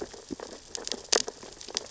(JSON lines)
{"label": "biophony, sea urchins (Echinidae)", "recorder": "SoundTrap 600 or HydroMoth"}